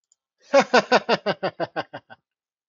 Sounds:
Laughter